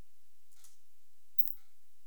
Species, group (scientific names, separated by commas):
Phaneroptera nana, Orthoptera